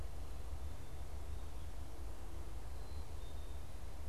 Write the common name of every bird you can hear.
Black-capped Chickadee